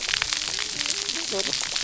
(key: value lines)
label: biophony, cascading saw
recorder: SoundTrap 300